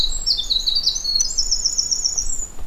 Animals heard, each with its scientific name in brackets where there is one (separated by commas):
Winter Wren (Troglodytes hiemalis), Dark-eyed Junco (Junco hyemalis)